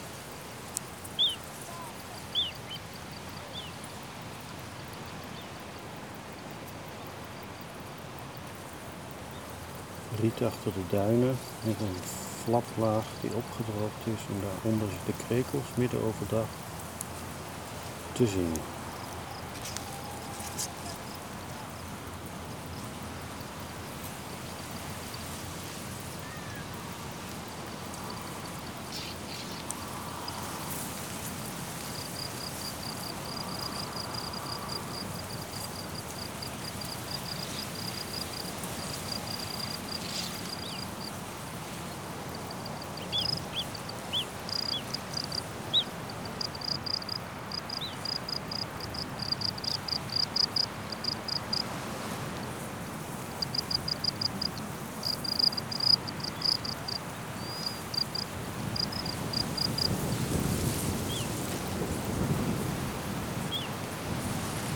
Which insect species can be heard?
Gryllus bimaculatus